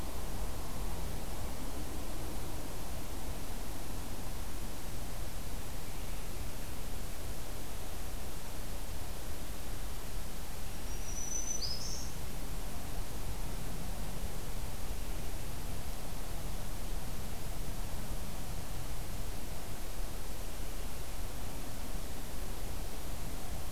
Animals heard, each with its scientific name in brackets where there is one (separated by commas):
Black-throated Green Warbler (Setophaga virens)